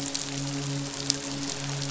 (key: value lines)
label: biophony, midshipman
recorder: SoundTrap 500